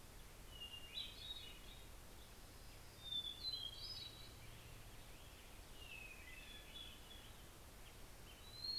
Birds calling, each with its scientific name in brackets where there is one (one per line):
Hermit Thrush (Catharus guttatus)